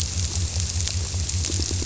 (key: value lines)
label: biophony
recorder: SoundTrap 300